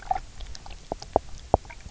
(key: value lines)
label: biophony, knock
recorder: SoundTrap 300